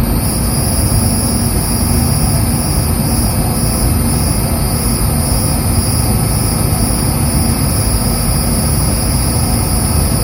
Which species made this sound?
Neocicada hieroglyphica